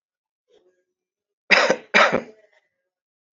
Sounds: Cough